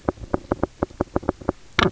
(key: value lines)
label: biophony, knock
recorder: SoundTrap 300